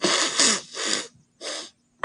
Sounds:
Sniff